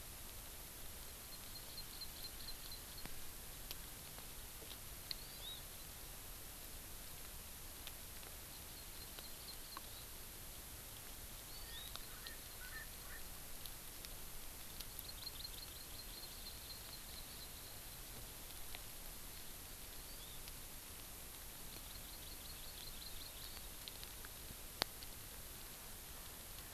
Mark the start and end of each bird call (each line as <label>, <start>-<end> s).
Hawaii Amakihi (Chlorodrepanis virens), 1.1-3.1 s
Hawaii Amakihi (Chlorodrepanis virens), 5.1-5.6 s
Hawaii Amakihi (Chlorodrepanis virens), 8.5-10.1 s
Hawaii Amakihi (Chlorodrepanis virens), 11.5-11.9 s
Erckel's Francolin (Pternistis erckelii), 11.5-13.2 s
Hawaii Amakihi (Chlorodrepanis virens), 15.0-17.5 s
Hawaii Amakihi (Chlorodrepanis virens), 20.0-20.4 s
Hawaii Amakihi (Chlorodrepanis virens), 21.5-23.7 s